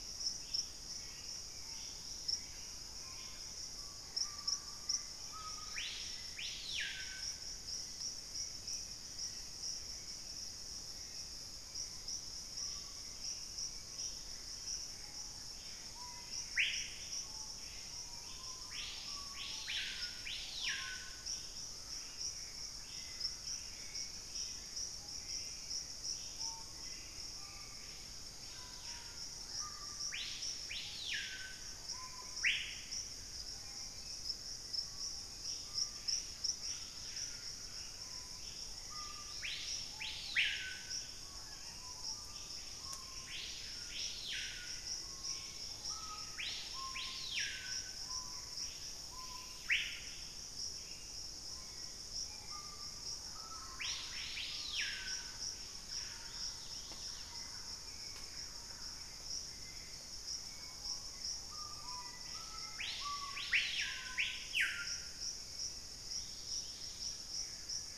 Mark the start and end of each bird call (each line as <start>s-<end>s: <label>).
0.0s-3.8s: Buff-breasted Wren (Cantorchilus leucotis)
0.0s-7.6s: Screaming Piha (Lipaugus vociferans)
0.0s-46.3s: Hauxwell's Thrush (Turdus hauxwelli)
5.1s-6.1s: Dusky-capped Greenlet (Pachysylvia hypoxantha)
8.5s-12.0s: Black-capped Becard (Pachyramphus marginatus)
11.7s-68.0s: Screaming Piha (Lipaugus vociferans)
14.2s-16.3s: Gray Antbird (Cercomacra cinerascens)
22.2s-24.2s: Gray Antbird (Cercomacra cinerascens)
35.6s-38.5s: Gray Antbird (Cercomacra cinerascens)
45.1s-46.4s: Dusky-capped Greenlet (Pachysylvia hypoxantha)
47.6s-49.7s: Gray Antbird (Cercomacra cinerascens)
51.4s-68.0s: Hauxwell's Thrush (Turdus hauxwelli)
52.7s-59.4s: Thrush-like Wren (Campylorhynchus turdinus)
56.3s-57.6s: Dusky-capped Greenlet (Pachysylvia hypoxantha)
58.7s-60.1s: Gray Antbird (Cercomacra cinerascens)
61.8s-64.1s: Black-faced Antthrush (Formicarius analis)
66.0s-67.4s: Dusky-capped Greenlet (Pachysylvia hypoxantha)
66.5s-68.0s: Gray Antbird (Cercomacra cinerascens)